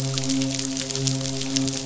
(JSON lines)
{"label": "biophony, midshipman", "recorder": "SoundTrap 500"}